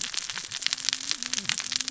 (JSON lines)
{"label": "biophony, cascading saw", "recorder": "SoundTrap 600 or HydroMoth"}